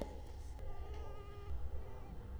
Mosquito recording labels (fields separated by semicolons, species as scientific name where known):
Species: Culex quinquefasciatus; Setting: cup